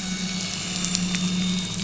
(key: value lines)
label: anthrophony, boat engine
recorder: SoundTrap 500